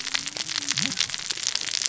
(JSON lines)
{"label": "biophony, cascading saw", "recorder": "SoundTrap 600 or HydroMoth"}